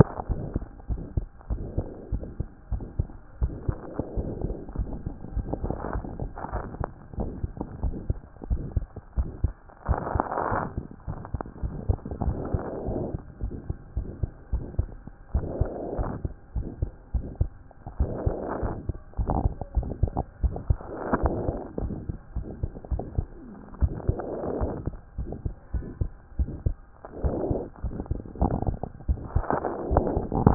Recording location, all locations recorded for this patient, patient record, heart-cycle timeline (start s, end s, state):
pulmonary valve (PV)
aortic valve (AV)+pulmonary valve (PV)+tricuspid valve (TV)+mitral valve (MV)
#Age: Child
#Sex: Male
#Height: 101.0 cm
#Weight: 16.6 kg
#Pregnancy status: False
#Murmur: Present
#Murmur locations: mitral valve (MV)+pulmonary valve (PV)+tricuspid valve (TV)
#Most audible location: pulmonary valve (PV)
#Systolic murmur timing: Holosystolic
#Systolic murmur shape: Decrescendo
#Systolic murmur grading: I/VI
#Systolic murmur pitch: Low
#Systolic murmur quality: Blowing
#Diastolic murmur timing: nan
#Diastolic murmur shape: nan
#Diastolic murmur grading: nan
#Diastolic murmur pitch: nan
#Diastolic murmur quality: nan
#Outcome: Abnormal
#Campaign: 2014 screening campaign
0.00	0.30	unannotated
0.30	0.40	S1
0.40	0.54	systole
0.54	0.64	S2
0.64	0.90	diastole
0.90	1.02	S1
1.02	1.16	systole
1.16	1.26	S2
1.26	1.50	diastole
1.50	1.62	S1
1.62	1.76	systole
1.76	1.86	S2
1.86	2.12	diastole
2.12	2.22	S1
2.22	2.38	systole
2.38	2.46	S2
2.46	2.72	diastole
2.72	2.82	S1
2.82	2.98	systole
2.98	3.06	S2
3.06	3.40	diastole
3.40	3.54	S1
3.54	3.68	systole
3.68	3.76	S2
3.76	4.22	diastole
4.22	4.28	S1
4.28	4.44	systole
4.44	4.56	S2
4.56	4.78	diastole
4.78	4.88	S1
4.88	5.04	systole
5.04	5.14	S2
5.14	5.34	diastole
5.34	5.46	S1
5.46	5.64	systole
5.64	5.74	S2
5.74	5.94	diastole
5.94	6.04	S1
6.04	6.20	systole
6.20	6.30	S2
6.30	6.52	diastole
6.52	6.64	S1
6.64	6.78	systole
6.78	6.88	S2
6.88	7.18	diastole
7.18	7.30	S1
7.30	7.42	systole
7.42	7.50	S2
7.50	7.82	diastole
7.82	7.94	S1
7.94	8.08	systole
8.08	8.18	S2
8.18	8.50	diastole
8.50	8.62	S1
8.62	8.74	systole
8.74	8.86	S2
8.86	9.18	diastole
9.18	9.28	S1
9.28	9.42	systole
9.42	9.52	S2
9.52	9.88	diastole
9.88	10.00	S1
10.00	10.14	systole
10.14	10.24	S2
10.24	10.50	diastole
10.50	10.64	S1
10.64	10.76	systole
10.76	10.86	S2
10.86	11.08	diastole
11.08	11.18	S1
11.18	11.32	systole
11.32	11.42	S2
11.42	11.62	diastole
11.62	11.74	S1
11.74	11.88	systole
11.88	11.98	S2
11.98	12.24	diastole
12.24	12.36	S1
12.36	12.52	systole
12.52	12.62	S2
12.62	12.88	diastole
12.88	13.01	S1
13.01	13.14	systole
13.14	13.22	S2
13.22	13.42	diastole
13.42	13.52	S1
13.52	13.68	systole
13.68	13.76	S2
13.76	13.96	diastole
13.96	14.08	S1
14.08	14.20	systole
14.20	14.28	S2
14.28	14.52	diastole
14.52	14.64	S1
14.64	14.78	systole
14.78	14.88	S2
14.88	15.34	diastole
15.34	15.48	S1
15.48	15.60	systole
15.60	15.70	S2
15.70	15.98	diastole
15.98	16.12	S1
16.12	16.24	systole
16.24	16.32	S2
16.32	16.56	diastole
16.56	16.68	S1
16.68	16.80	systole
16.80	16.90	S2
16.90	17.14	diastole
17.14	17.26	S1
17.26	17.38	systole
17.38	17.50	S2
17.50	17.98	diastole
17.98	18.12	S1
18.12	18.24	systole
18.24	18.36	S2
18.36	18.62	diastole
18.62	18.74	S1
18.74	18.88	systole
18.88	18.96	S2
18.96	19.20	diastole
19.20	19.31	S1
19.31	19.44	systole
19.44	19.52	S2
19.52	19.76	diastole
19.76	19.88	S1
19.88	20.02	systole
20.02	20.12	S2
20.12	20.42	diastole
20.42	20.54	S1
20.54	20.68	systole
20.68	20.78	S2
20.78	21.22	diastole
21.22	21.34	S1
21.34	21.46	systole
21.46	21.56	S2
21.56	21.82	diastole
21.82	21.94	S1
21.94	22.08	systole
22.08	22.18	S2
22.18	22.36	diastole
22.36	22.46	S1
22.46	22.60	systole
22.60	22.70	S2
22.70	22.92	diastole
22.92	23.02	S1
23.02	23.16	systole
23.16	23.26	S2
23.26	23.80	diastole
23.80	23.94	S1
23.94	24.08	systole
24.08	24.18	S2
24.18	24.60	diastole
24.60	24.72	S1
24.72	24.86	systole
24.86	24.96	S2
24.96	25.18	diastole
25.18	25.30	S1
25.30	25.44	systole
25.44	25.54	S2
25.54	25.74	diastole
25.74	25.86	S1
25.86	26.00	systole
26.00	26.10	S2
26.10	26.38	diastole
26.38	26.50	S1
26.50	26.64	systole
26.64	26.76	S2
26.76	27.22	diastole
27.22	27.36	S1
27.36	27.50	systole
27.50	27.62	S2
27.62	27.84	diastole
27.84	27.96	S1
27.96	28.10	systole
28.10	28.20	S2
28.20	28.40	diastole
28.40	28.54	S1
28.54	28.66	systole
28.66	28.76	S2
28.76	29.08	diastole
29.08	29.20	S1
29.20	29.34	systole
29.34	29.44	S2
29.44	29.90	diastole
29.90	30.54	unannotated